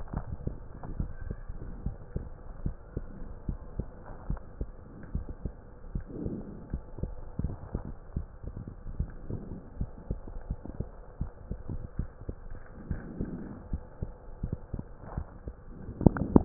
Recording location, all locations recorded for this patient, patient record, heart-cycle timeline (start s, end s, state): mitral valve (MV)
aortic valve (AV)+pulmonary valve (PV)+tricuspid valve (TV)+mitral valve (MV)
#Age: Child
#Sex: Female
#Height: 136.0 cm
#Weight: 30.8 kg
#Pregnancy status: False
#Murmur: Absent
#Murmur locations: nan
#Most audible location: nan
#Systolic murmur timing: nan
#Systolic murmur shape: nan
#Systolic murmur grading: nan
#Systolic murmur pitch: nan
#Systolic murmur quality: nan
#Diastolic murmur timing: nan
#Diastolic murmur shape: nan
#Diastolic murmur grading: nan
#Diastolic murmur pitch: nan
#Diastolic murmur quality: nan
#Outcome: Normal
#Campaign: 2015 screening campaign
0.00	0.54	unannotated
0.54	0.90	diastole
0.90	1.10	S1
1.10	1.26	systole
1.26	1.36	S2
1.36	1.84	diastole
1.84	1.96	S1
1.96	2.16	systole
2.16	2.28	S2
2.28	2.64	diastole
2.64	2.76	S1
2.76	2.96	systole
2.96	3.06	S2
3.06	3.48	diastole
3.48	3.60	S1
3.60	3.78	systole
3.78	3.88	S2
3.88	4.28	diastole
4.28	4.40	S1
4.40	4.55	systole
4.55	4.70	S2
4.70	5.14	diastole
5.14	5.26	S1
5.26	5.42	systole
5.42	5.56	S2
5.56	5.94	diastole
5.94	6.06	S1
6.06	6.23	systole
6.23	6.38	S2
6.38	6.70	diastole
6.70	6.82	S1
6.82	6.97	systole
6.97	7.14	S2
7.14	7.40	diastole
7.40	7.56	S1
7.56	7.72	systole
7.72	7.84	S2
7.84	8.12	diastole
8.12	8.26	S1
8.26	8.43	systole
8.43	8.56	S2
8.56	8.88	diastole
8.88	9.10	S1
9.10	9.30	systole
9.30	9.42	S2
9.42	9.76	diastole
9.76	9.90	S1
9.90	10.10	systole
10.10	10.22	S2
10.22	10.44	diastole
10.44	10.58	S1
10.58	10.75	systole
10.75	10.88	S2
10.88	11.17	diastole
11.17	11.30	S1
11.30	11.48	systole
11.48	11.60	S2
11.60	11.94	diastole
11.94	12.08	S1
12.08	12.26	systole
12.26	12.36	S2
12.36	12.88	diastole
12.88	13.02	S1
13.02	13.18	systole
13.18	13.34	S2
13.34	13.69	diastole
13.69	13.82	S1
13.82	13.97	systole
13.97	14.12	S2
14.12	14.39	diastole
14.39	14.56	S1
14.56	14.68	systole
14.68	14.84	S2
14.84	15.15	diastole
15.15	15.28	S1
15.28	15.44	systole
15.44	15.54	S2
15.54	15.90	diastole
15.90	16.45	unannotated